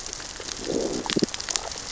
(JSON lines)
{"label": "biophony, growl", "recorder": "SoundTrap 600 or HydroMoth"}